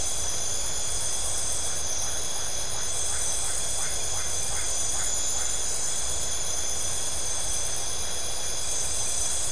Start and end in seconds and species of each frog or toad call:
1.3	5.8	Iporanga white-lipped frog
12:30am

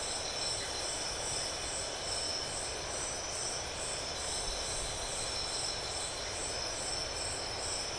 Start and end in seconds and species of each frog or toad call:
none
11:30pm

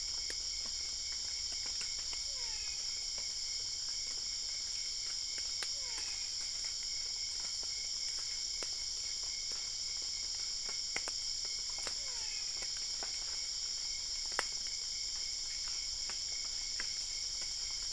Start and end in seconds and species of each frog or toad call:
2.3	3.0	brown-spotted dwarf frog
5.7	6.4	brown-spotted dwarf frog
12.0	12.7	brown-spotted dwarf frog
2:45am

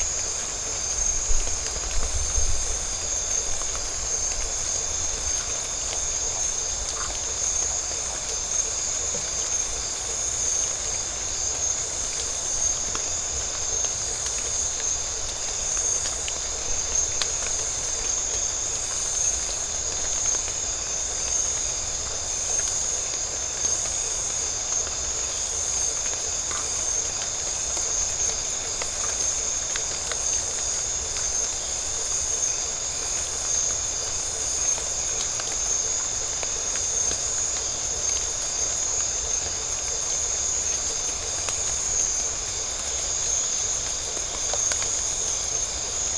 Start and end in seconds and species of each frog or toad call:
5.3	5.6	Phyllomedusa distincta
6.9	7.2	Phyllomedusa distincta
26.5	26.7	Phyllomedusa distincta
29.0	29.2	Phyllomedusa distincta
10:15pm

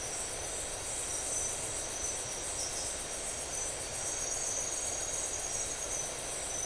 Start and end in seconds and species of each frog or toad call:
none
1:30am

